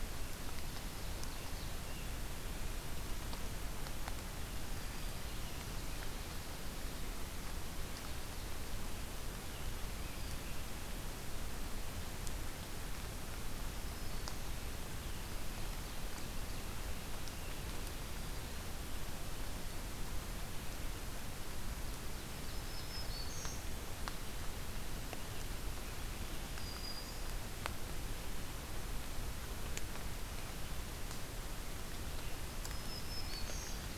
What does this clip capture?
Ovenbird, Black-throated Green Warbler